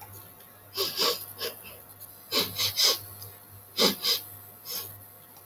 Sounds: Sniff